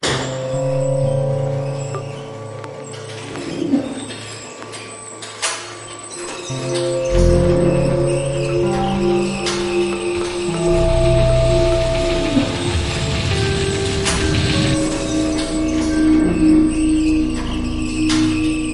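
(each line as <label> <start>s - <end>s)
Metal slaps. 0.0s - 0.2s
Scary horror movie background music playing. 0.0s - 2.5s
A bat is emitting sounds in the background. 0.0s - 18.7s
Something is popping. 1.9s - 2.0s
A chair is moving. 3.7s - 3.9s
Metal slaps. 5.4s - 5.6s
Scary horror movie background music playing. 6.7s - 18.7s
Metal slaps. 9.4s - 9.6s
Bats are flapping their wings. 10.6s - 14.9s
A chair is moving. 12.3s - 12.4s
Metal slaps. 14.0s - 14.2s
Metal slaps. 18.1s - 18.3s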